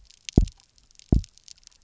{"label": "biophony, double pulse", "recorder": "SoundTrap 300"}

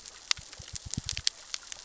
{"label": "biophony, knock", "recorder": "SoundTrap 600 or HydroMoth"}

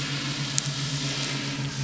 {"label": "anthrophony, boat engine", "recorder": "SoundTrap 500"}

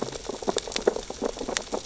{"label": "biophony, sea urchins (Echinidae)", "recorder": "SoundTrap 600 or HydroMoth"}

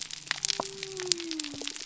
{"label": "biophony", "recorder": "SoundTrap 300"}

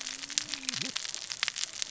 {"label": "biophony, cascading saw", "recorder": "SoundTrap 600 or HydroMoth"}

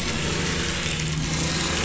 {"label": "anthrophony, boat engine", "recorder": "SoundTrap 500"}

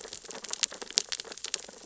{"label": "biophony, sea urchins (Echinidae)", "recorder": "SoundTrap 600 or HydroMoth"}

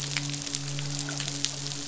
{"label": "biophony, midshipman", "recorder": "SoundTrap 500"}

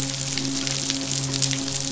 {"label": "biophony, midshipman", "recorder": "SoundTrap 500"}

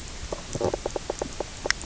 {"label": "biophony, knock croak", "recorder": "SoundTrap 300"}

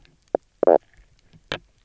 {"label": "biophony, knock croak", "recorder": "SoundTrap 300"}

